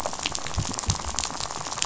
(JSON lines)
{"label": "biophony, rattle", "recorder": "SoundTrap 500"}